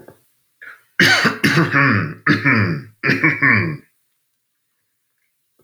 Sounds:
Throat clearing